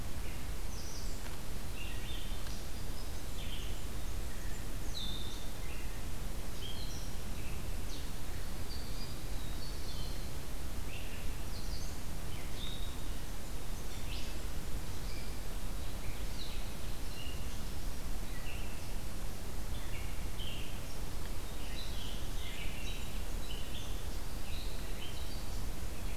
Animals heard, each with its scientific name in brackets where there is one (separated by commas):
Red-eyed Vireo (Vireo olivaceus), Black-throated Green Warbler (Setophaga virens), Blackburnian Warbler (Setophaga fusca)